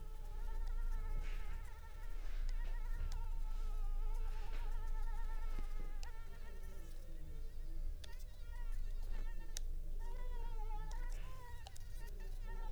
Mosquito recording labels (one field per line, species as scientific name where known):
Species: Anopheles arabiensis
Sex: female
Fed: unfed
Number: one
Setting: cup